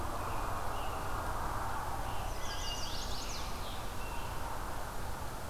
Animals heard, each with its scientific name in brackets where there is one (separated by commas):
American Robin (Turdus migratorius), Chestnut-sided Warbler (Setophaga pensylvanica)